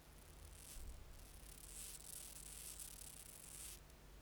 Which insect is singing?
Chorthippus acroleucus, an orthopteran